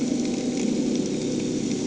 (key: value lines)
label: anthrophony, boat engine
recorder: HydroMoth